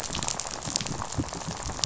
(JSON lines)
{"label": "biophony, rattle", "recorder": "SoundTrap 500"}